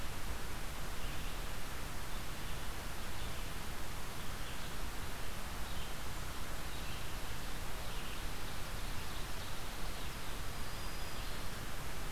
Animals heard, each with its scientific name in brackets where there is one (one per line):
Red-eyed Vireo (Vireo olivaceus)
Black-throated Green Warbler (Setophaga virens)